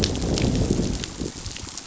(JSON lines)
{"label": "biophony, growl", "recorder": "SoundTrap 500"}